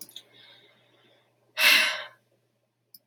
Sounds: Sigh